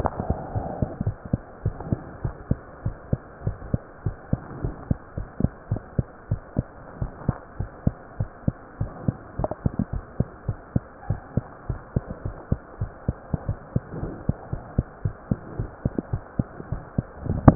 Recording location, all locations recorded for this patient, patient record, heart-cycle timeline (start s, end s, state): mitral valve (MV)
aortic valve (AV)+pulmonary valve (PV)+tricuspid valve (TV)+mitral valve (MV)
#Age: Child
#Sex: Female
#Height: 95.0 cm
#Weight: 13.6 kg
#Pregnancy status: False
#Murmur: Absent
#Murmur locations: nan
#Most audible location: nan
#Systolic murmur timing: nan
#Systolic murmur shape: nan
#Systolic murmur grading: nan
#Systolic murmur pitch: nan
#Systolic murmur quality: nan
#Diastolic murmur timing: nan
#Diastolic murmur shape: nan
#Diastolic murmur grading: nan
#Diastolic murmur pitch: nan
#Diastolic murmur quality: nan
#Outcome: Abnormal
#Campaign: 2015 screening campaign
0.00	1.62	unannotated
1.62	1.78	S1
1.78	1.88	systole
1.88	2.00	S2
2.00	2.22	diastole
2.22	2.36	S1
2.36	2.46	systole
2.46	2.60	S2
2.60	2.84	diastole
2.84	2.96	S1
2.96	3.08	systole
3.08	3.22	S2
3.22	3.44	diastole
3.44	3.58	S1
3.58	3.72	systole
3.72	3.82	S2
3.82	4.04	diastole
4.04	4.16	S1
4.16	4.28	systole
4.28	4.42	S2
4.42	4.62	diastole
4.62	4.76	S1
4.76	4.86	systole
4.86	5.00	S2
5.00	5.15	diastole
5.15	5.28	S1
5.28	5.40	systole
5.40	5.52	S2
5.52	5.68	diastole
5.68	5.82	S1
5.82	5.94	systole
5.94	6.08	S2
6.08	6.27	diastole
6.27	6.42	S1
6.42	6.55	systole
6.55	6.68	S2
6.68	6.96	diastole
6.96	7.12	S1
7.12	7.26	systole
7.26	7.38	S2
7.38	7.56	diastole
7.56	7.70	S1
7.70	7.82	systole
7.82	7.96	S2
7.96	8.16	diastole
8.16	8.30	S1
8.30	8.44	systole
8.44	8.58	S2
8.58	8.77	diastole
8.77	8.91	S1
8.91	9.06	systole
9.06	9.18	S2
9.18	9.36	diastole
9.36	9.50	S1
9.50	9.62	systole
9.62	9.72	S2
9.72	9.89	diastole
9.89	10.04	S1
10.04	10.16	systole
10.16	10.30	S2
10.30	10.45	diastole
10.45	10.58	S1
10.58	10.72	systole
10.72	10.86	S2
10.86	11.06	diastole
11.06	11.20	S1
11.20	11.33	systole
11.33	11.46	S2
11.46	11.64	diastole
11.64	11.80	S1
11.80	11.92	systole
11.92	12.04	S2
12.04	12.21	diastole
12.21	12.36	S1
12.36	12.48	systole
12.48	12.62	S2
12.62	12.77	diastole
12.77	12.90	S1
12.90	13.04	systole
13.04	13.18	S2
13.18	13.44	diastole
13.44	13.58	S1
13.58	13.73	systole
13.73	13.83	S2
13.83	14.00	diastole
14.00	14.12	S1
14.12	14.26	systole
14.26	14.36	S2
14.36	14.50	diastole
14.50	14.64	S1
14.64	14.74	systole
14.74	14.86	S2
14.86	15.01	diastole
15.01	15.16	S1
15.16	15.27	systole
15.27	15.40	S2
15.40	15.55	diastole
15.55	15.70	S1
15.70	15.82	systole
15.82	15.92	S2
15.92	16.10	diastole
16.10	16.22	S1
16.22	16.35	systole
16.35	16.50	S2
16.50	16.70	diastole
16.70	16.84	S1
16.84	16.94	systole
16.94	17.06	S2
17.06	17.55	unannotated